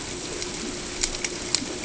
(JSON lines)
{"label": "ambient", "recorder": "HydroMoth"}